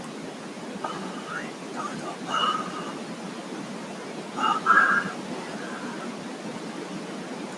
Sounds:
Sigh